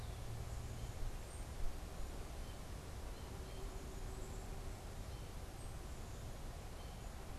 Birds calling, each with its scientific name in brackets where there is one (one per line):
American Goldfinch (Spinus tristis)
Black-capped Chickadee (Poecile atricapillus)